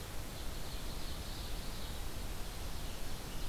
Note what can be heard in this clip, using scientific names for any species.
Seiurus aurocapilla